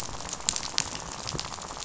{"label": "biophony, rattle", "recorder": "SoundTrap 500"}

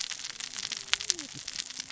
{"label": "biophony, cascading saw", "recorder": "SoundTrap 600 or HydroMoth"}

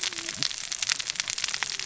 {"label": "biophony, cascading saw", "recorder": "SoundTrap 600 or HydroMoth"}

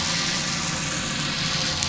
{"label": "anthrophony, boat engine", "recorder": "SoundTrap 500"}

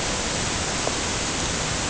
{"label": "ambient", "recorder": "HydroMoth"}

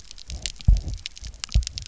{"label": "biophony, double pulse", "recorder": "SoundTrap 300"}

